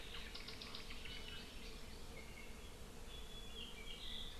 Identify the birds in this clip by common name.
Hawaii Amakihi